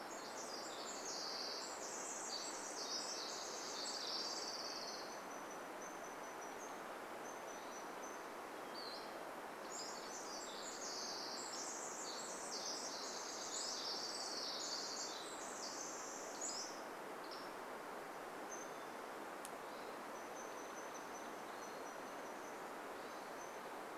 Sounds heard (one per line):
Pacific-slope Flycatcher call
Pacific-slope Flycatcher song
Hermit Thrush song
Pacific Wren song
Golden-crowned Kinglet call
unidentified sound
Orange-crowned Warbler song
Red-breasted Nuthatch song